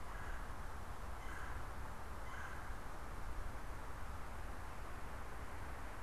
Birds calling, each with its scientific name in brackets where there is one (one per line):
Red-bellied Woodpecker (Melanerpes carolinus)